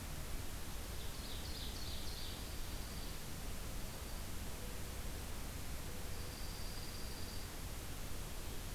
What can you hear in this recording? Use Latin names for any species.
Seiurus aurocapilla, Junco hyemalis